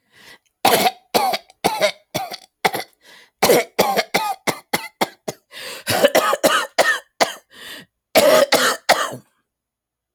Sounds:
Cough